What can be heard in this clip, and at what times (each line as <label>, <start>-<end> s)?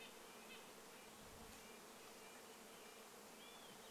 Red-breasted Nuthatch song, 0-4 s
insect buzz, 0-4 s
Olive-sided Flycatcher song, 2-4 s